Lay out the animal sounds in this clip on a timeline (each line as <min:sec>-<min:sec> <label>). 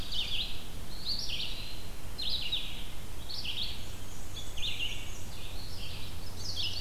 0:00.0-0:00.8 Ovenbird (Seiurus aurocapilla)
0:00.0-0:06.8 Red-eyed Vireo (Vireo olivaceus)
0:00.8-0:02.1 Eastern Wood-Pewee (Contopus virens)
0:03.5-0:05.8 Black-and-white Warbler (Mniotilta varia)
0:06.3-0:06.8 Chestnut-sided Warbler (Setophaga pensylvanica)